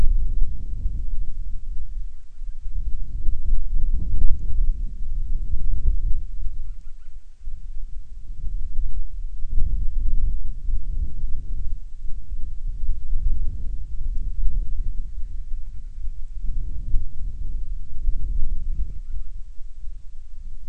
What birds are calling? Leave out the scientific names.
Band-rumped Storm-Petrel